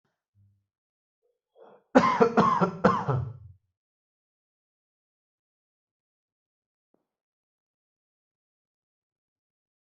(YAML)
expert_labels:
- quality: good
  cough_type: dry
  dyspnea: false
  wheezing: false
  stridor: false
  choking: false
  congestion: false
  nothing: true
  diagnosis: healthy cough
  severity: pseudocough/healthy cough
age: 19
gender: male
respiratory_condition: false
fever_muscle_pain: false
status: symptomatic